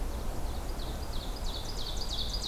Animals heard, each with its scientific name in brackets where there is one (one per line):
Ovenbird (Seiurus aurocapilla)